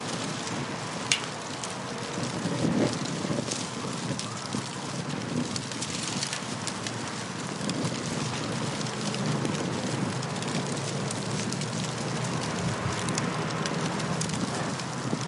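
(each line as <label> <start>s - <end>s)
Fire burning with the light crackle of wood and paper. 0.0s - 15.3s
Fire burning with loud crackling of wood. 1.1s - 1.2s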